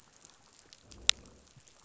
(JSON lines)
{"label": "biophony", "recorder": "SoundTrap 500"}